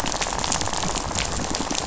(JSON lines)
{"label": "biophony, rattle", "recorder": "SoundTrap 500"}